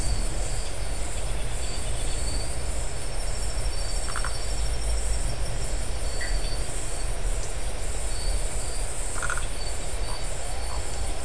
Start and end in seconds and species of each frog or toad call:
4.0	4.3	Phyllomedusa distincta
6.2	6.3	Dendropsophus elegans
9.1	9.5	Phyllomedusa distincta

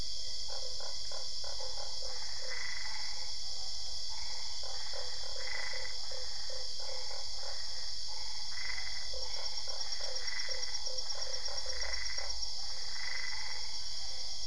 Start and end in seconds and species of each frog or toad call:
0.4	2.7	Boana lundii
2.0	3.3	Boana albopunctata
4.1	13.7	Boana albopunctata
4.6	7.6	Boana lundii
9.1	12.3	Boana lundii

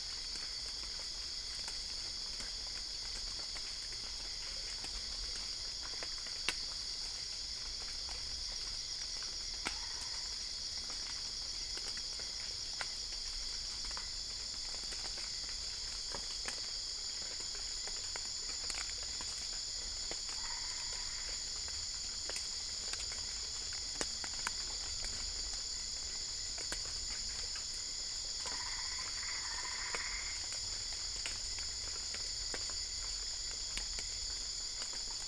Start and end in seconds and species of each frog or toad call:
9.6	10.6	Boana albopunctata
20.0	21.5	Boana albopunctata
28.2	30.6	Boana albopunctata

